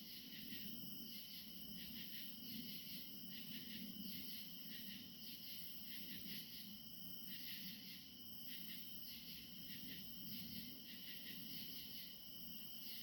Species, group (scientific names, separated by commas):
Pterophylla camellifolia, Orthoptera